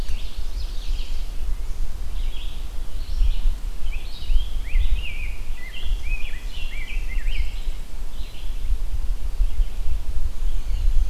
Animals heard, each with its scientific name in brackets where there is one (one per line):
Rose-breasted Grosbeak (Pheucticus ludovicianus)
Red-eyed Vireo (Vireo olivaceus)
Ovenbird (Seiurus aurocapilla)
Black-and-white Warbler (Mniotilta varia)